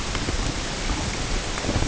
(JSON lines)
{"label": "ambient", "recorder": "HydroMoth"}